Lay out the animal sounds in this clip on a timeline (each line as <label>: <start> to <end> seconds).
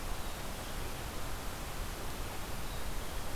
Black-capped Chickadee (Poecile atricapillus): 0.1 to 0.9 seconds
Black-capped Chickadee (Poecile atricapillus): 2.5 to 3.4 seconds